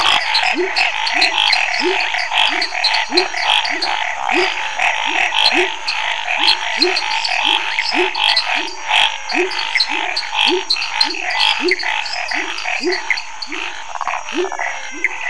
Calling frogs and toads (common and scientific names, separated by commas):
lesser tree frog (Dendropsophus minutus), dwarf tree frog (Dendropsophus nanus), Chaco tree frog (Boana raniceps), pepper frog (Leptodactylus labyrinthicus), Scinax fuscovarius, rufous frog (Leptodactylus fuscus), Pithecopus azureus, menwig frog (Physalaemus albonotatus)